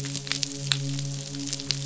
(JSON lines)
{"label": "biophony, midshipman", "recorder": "SoundTrap 500"}